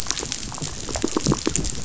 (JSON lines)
{"label": "biophony", "recorder": "SoundTrap 500"}